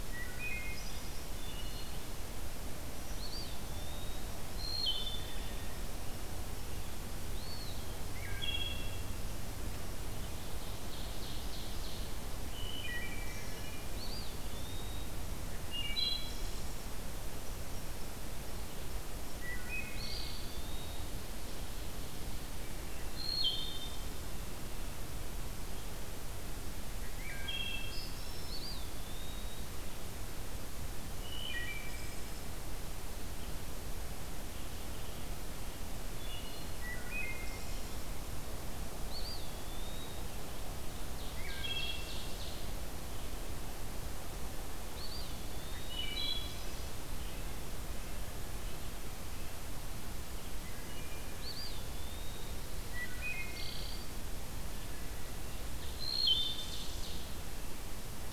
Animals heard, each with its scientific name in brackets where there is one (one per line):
Wood Thrush (Hylocichla mustelina)
Ovenbird (Seiurus aurocapilla)
Eastern Wood-Pewee (Contopus virens)